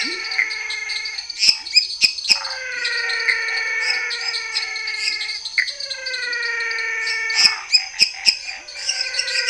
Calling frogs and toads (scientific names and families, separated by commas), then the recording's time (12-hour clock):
Leptodactylus labyrinthicus (Leptodactylidae), Boana raniceps (Hylidae), Dendropsophus minutus (Hylidae), Dendropsophus nanus (Hylidae), Physalaemus albonotatus (Leptodactylidae), Pithecopus azureus (Hylidae), Phyllomedusa sauvagii (Hylidae)
8:30pm